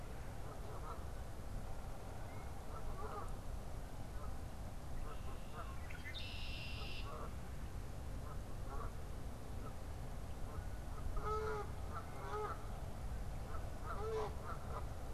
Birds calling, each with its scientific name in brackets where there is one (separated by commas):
Canada Goose (Branta canadensis), Red-winged Blackbird (Agelaius phoeniceus)